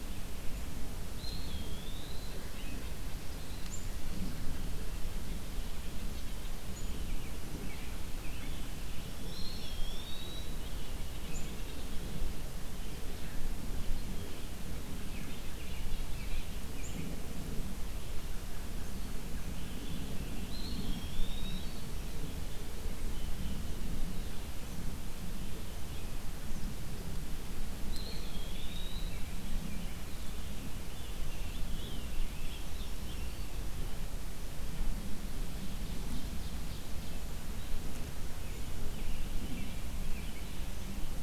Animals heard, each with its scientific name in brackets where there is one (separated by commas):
American Crow (Corvus brachyrhynchos), Eastern Wood-Pewee (Contopus virens), Black-throated Green Warbler (Setophaga virens), Ovenbird (Seiurus aurocapilla), Scarlet Tanager (Piranga olivacea), White-breasted Nuthatch (Sitta carolinensis), American Robin (Turdus migratorius)